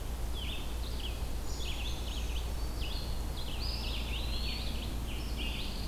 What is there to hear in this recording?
Red-eyed Vireo, Brown Creeper, Scarlet Tanager, Eastern Wood-Pewee, Pine Warbler